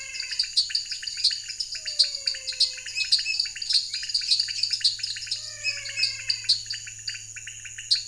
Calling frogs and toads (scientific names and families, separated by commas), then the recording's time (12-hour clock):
Physalaemus albonotatus (Leptodactylidae), Dendropsophus nanus (Hylidae), Leptodactylus podicipinus (Leptodactylidae)
7:15pm